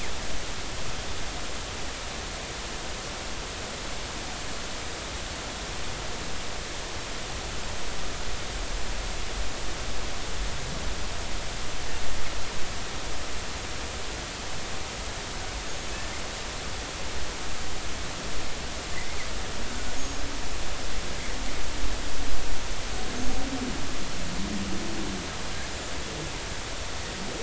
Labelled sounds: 18.9	19.2	killer whale, northern resident, G clan, 1.9 to 2.2 kHz
20.0	20.2	killer whale, northern resident, G clan, 6.5 to 6.7 kHz

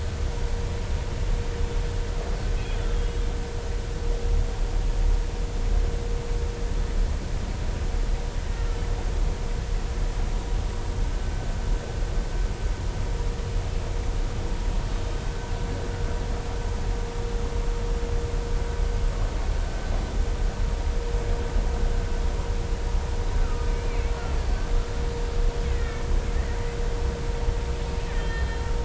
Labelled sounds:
23.7	24.6	killer whale, Bigg's (transient), 1.3 to 4.6 kHz
25.6	26.1	killer whale, Bigg's (transient), 1.7 to 2.4 kHz
28.1	28.6	killer whale, Bigg's (transient), 1.7 to 4.2 kHz

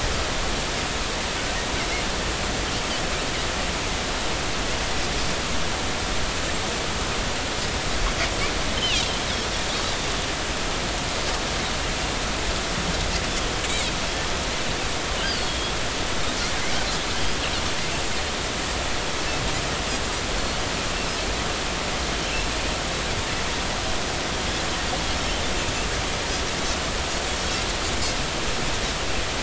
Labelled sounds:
8.8	9.0	Pacific white-sided dolphin, 2.3 to 3.2 kHz
15.5	15.7	Pacific white-sided dolphin, 3.2 to 3.4 kHz

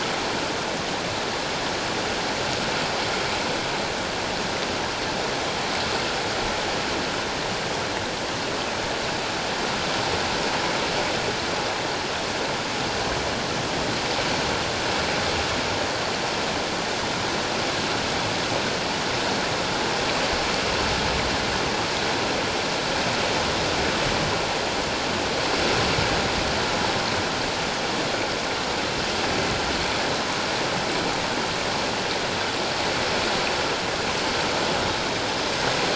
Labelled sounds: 34.9	35.1	killer whale, northern resident, G clan, 3.7 to 3.9 kHz

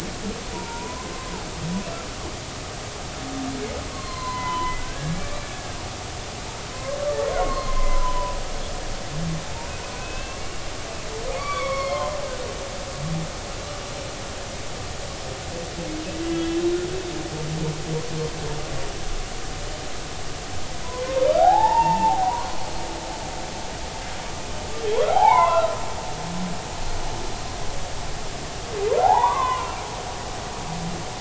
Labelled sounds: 3.9	5.8	humpback whale, 0.83 to 4.3 kHz
6.7	8.3	humpback whale, 0.93 to 2.2 kHz
10.0	12.2	humpback whale, 0.96 to 4.7 kHz
16.3	16.7	humpback whale, 2.9 to 3.1 kHz
21.4	22.5	humpback whale, 0.80 to 3.8 kHz
25.1	25.7	humpback whale, 0.80 to 3.6 kHz
29.4	30.7	humpback whale, 0.80 to 2.5 kHz

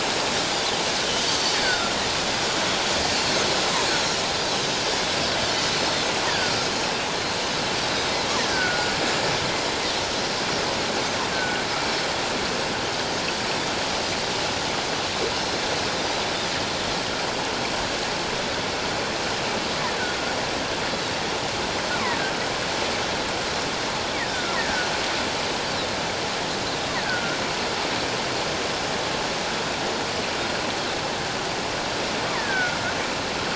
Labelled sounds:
1.5	2.0	killer whale, offshore, call OFF17, 1.2 to 1.9 kHz
6.3	6.5	killer whale, offshore, call OFF17, 1.4 to 1.9 kHz
6.3	6.7	Pacific white-sided dolphin, 4.5 to 5.0 kHz
8.4	8.9	killer whale, offshore, call OFF17, 1.4 to 2.0 kHz
9.1	9.3	Pacific white-sided dolphin, 6.8 to 7.3 kHz
10.4	10.6	Pacific white-sided dolphin, 5.4 to 5.8 kHz
11.3	11.6	killer whale, offshore, call OFF17, 1.4 to 1.6 kHz
24.3	24.9	killer whale, offshore, call OFF17, 1.3 to 2.0 kHz
27.0	27.4	killer whale, offshore, call OFF17, 1.3 to 1.7 kHz
32.3	32.8	killer whale, offshore, call OFF17, 1.3 to 2.1 kHz

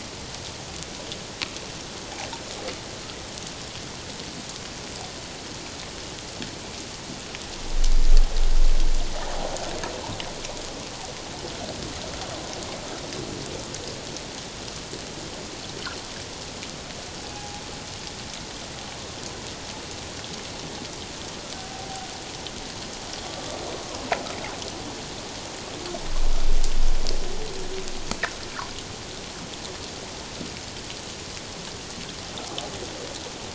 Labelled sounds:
17.3	17.6	humpback whale, 0.78 to 0.88 kHz
21.6	22.1	humpback whale, 0.78 to 0.81 kHz

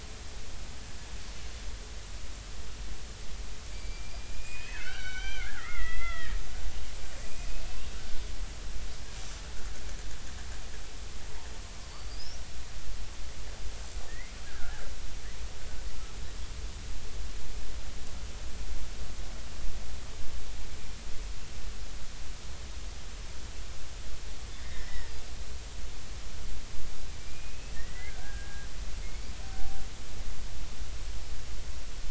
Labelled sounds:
3.7	6.4	killer whale, Bigg's (transient), 1.2 to 6.1 kHz
7.2	8.2	killer whale, Bigg's (transient), 1.3 to 2.8 kHz
11.9	12.3	killer whale, Bigg's (transient), 4.4 to 4.8 kHz
14.1	14.9	killer whale, Bigg's (transient), 1.3 to 2.4 kHz
24.6	25.1	killer whale, Bigg's (transient), 1.7 to 2.1 kHz
27.2	28.7	killer whale, Bigg's (transient), 1.5 to 2.7 kHz
29.0	29.8	killer whale, Bigg's (transient), 0.80 to 2.4 kHz

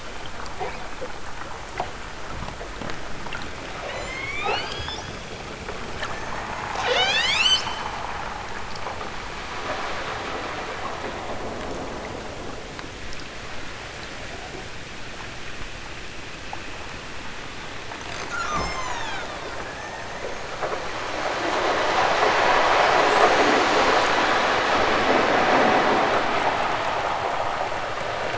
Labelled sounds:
3.8	5.2	killer whale, southern Alaska resident, 1.5 to 8.0 kHz
6.7	7.8	killer whale, southern Alaska resident, 0.32 to 8.0 kHz
18.3	20.6	killer whale, southern Alaska resident, 0.60 to 8.0 kHz
23.0	24.0	killer whale, southern Alaska resident, 3.4 to 8.0 kHz

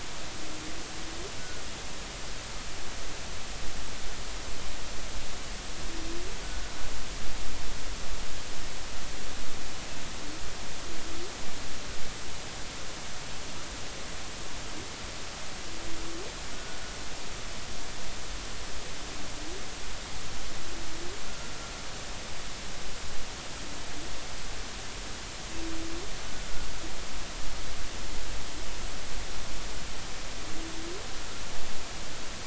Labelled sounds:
16.5	16.8	humpback whale, 1.4 to 1.5 kHz

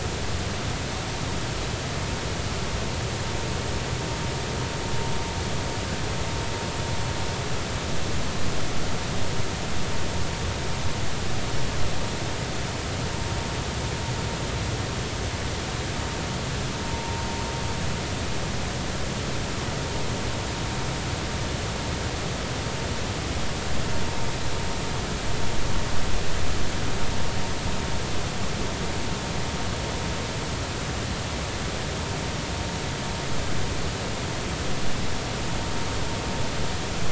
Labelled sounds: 16.9	17.2	vessel noise, 0.90 to 0.99 kHz

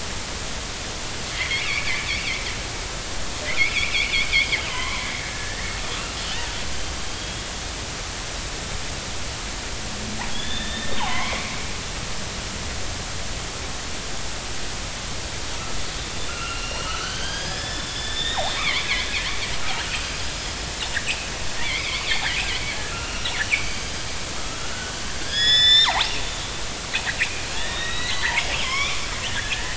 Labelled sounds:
1.3	2.4	killer whale, northern resident, 1.9 to 3.6 kHz
3.5	6.5	killer whale, northern resident, 0.93 to 3.7 kHz
7.1	7.4	killer whale, northern resident, 3.2 to 3.4 kHz
10.3	11.6	killer whale, northern resident, 0.80 to 3.7 kHz
16.3	18.9	killer whale, northern resident, 0.96 to 5.8 kHz
21.0	21.3	killer whale, northern resident, 2.4 to 3.0 kHz
21.6	22.0	killer whale, northern resident, 2.0 to 2.6 kHz
22.7	24.0	killer whale, northern resident, 1.3 to 6.4 kHz
24.6	26.1	killer whale, northern resident, 0.80 to 7.3 kHz
27.2	29.7	killer whale, northern resident, 0.83 to 6.9 kHz

